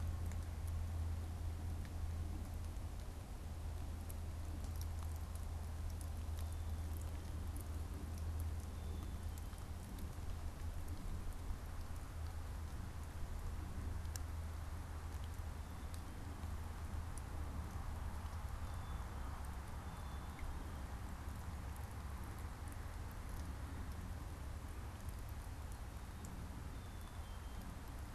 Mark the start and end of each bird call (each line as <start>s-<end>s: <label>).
0.0s-28.1s: Black-capped Chickadee (Poecile atricapillus)